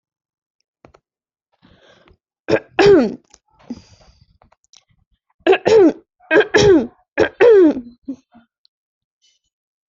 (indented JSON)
{
  "expert_labels": [
    {
      "quality": "good",
      "cough_type": "unknown",
      "dyspnea": false,
      "wheezing": false,
      "stridor": false,
      "choking": false,
      "congestion": false,
      "nothing": true,
      "diagnosis": "healthy cough",
      "severity": "pseudocough/healthy cough"
    }
  ],
  "gender": "female",
  "respiratory_condition": false,
  "fever_muscle_pain": false,
  "status": "healthy"
}